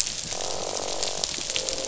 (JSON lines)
{"label": "biophony, croak", "recorder": "SoundTrap 500"}